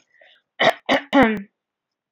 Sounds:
Throat clearing